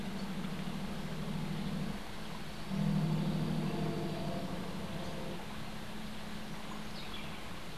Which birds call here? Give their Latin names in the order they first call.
unidentified bird